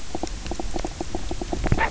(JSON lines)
{"label": "biophony, knock croak", "recorder": "SoundTrap 300"}